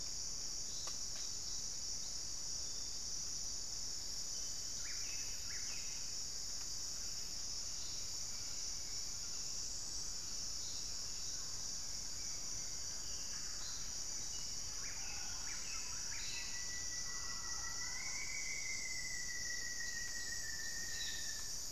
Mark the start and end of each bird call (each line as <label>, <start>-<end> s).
Buff-breasted Wren (Cantorchilus leucotis), 4.6-6.2 s
White-flanked Antwren (Myrmotherula axillaris), 11.4-13.3 s
Mealy Parrot (Amazona farinosa), 12.9-19.7 s
Buff-breasted Wren (Cantorchilus leucotis), 14.5-16.8 s
Rufous-fronted Antthrush (Formicarius rufifrons), 15.9-21.6 s